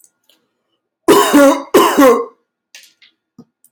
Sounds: Cough